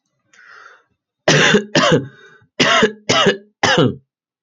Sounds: Cough